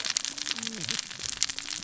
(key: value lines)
label: biophony, cascading saw
recorder: SoundTrap 600 or HydroMoth